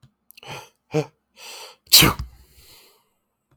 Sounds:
Sneeze